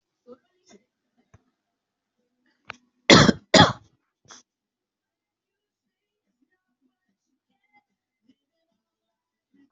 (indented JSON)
{
  "expert_labels": [
    {
      "quality": "good",
      "cough_type": "dry",
      "dyspnea": false,
      "wheezing": false,
      "stridor": false,
      "choking": false,
      "congestion": true,
      "nothing": false,
      "diagnosis": "upper respiratory tract infection",
      "severity": "pseudocough/healthy cough"
    }
  ]
}